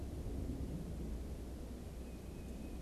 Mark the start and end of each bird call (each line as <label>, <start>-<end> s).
Tufted Titmouse (Baeolophus bicolor), 1.7-2.8 s